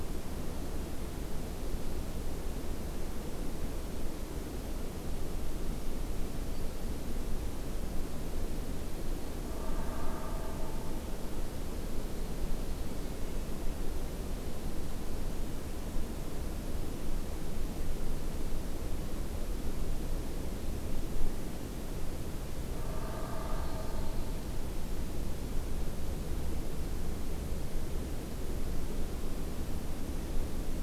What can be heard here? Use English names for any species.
forest ambience